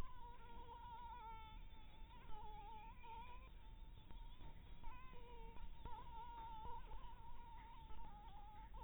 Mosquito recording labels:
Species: Anopheles dirus; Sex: female; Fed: blood-fed; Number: one; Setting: cup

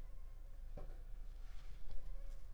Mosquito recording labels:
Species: Culex pipiens complex; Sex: female; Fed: unfed; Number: one; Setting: cup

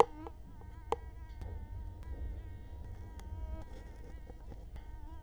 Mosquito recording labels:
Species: Culex quinquefasciatus; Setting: cup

